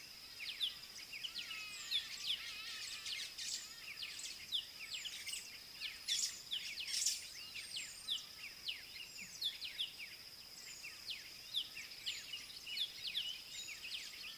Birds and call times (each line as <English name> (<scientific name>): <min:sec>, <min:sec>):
Hadada Ibis (Bostrychia hagedash): 0:01.8
White-browed Sparrow-Weaver (Plocepasser mahali): 0:06.2